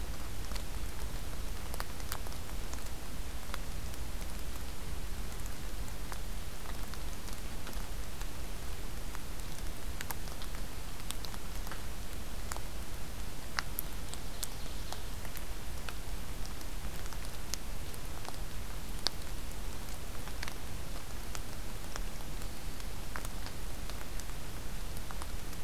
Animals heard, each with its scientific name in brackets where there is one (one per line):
Ovenbird (Seiurus aurocapilla)